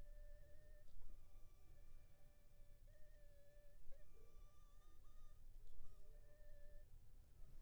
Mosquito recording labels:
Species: Anopheles funestus s.l.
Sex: female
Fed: unfed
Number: one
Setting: cup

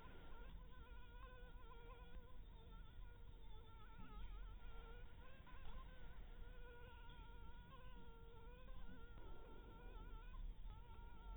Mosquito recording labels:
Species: Anopheles dirus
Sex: female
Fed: blood-fed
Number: one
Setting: cup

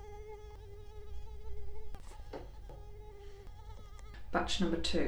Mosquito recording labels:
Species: Culex quinquefasciatus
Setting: cup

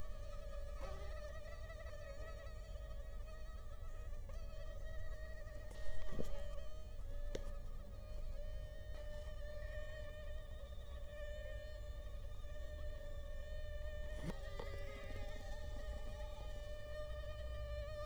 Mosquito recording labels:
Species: Culex quinquefasciatus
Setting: cup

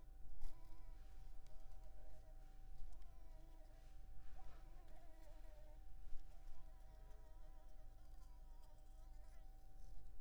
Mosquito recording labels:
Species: Anopheles arabiensis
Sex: female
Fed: unfed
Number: one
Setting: cup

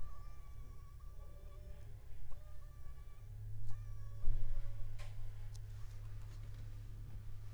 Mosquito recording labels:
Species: Anopheles funestus s.s.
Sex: female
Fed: unfed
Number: one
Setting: cup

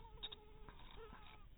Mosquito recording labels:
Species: mosquito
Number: one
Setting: cup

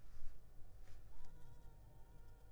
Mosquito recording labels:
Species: Culex pipiens complex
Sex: female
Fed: unfed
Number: one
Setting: cup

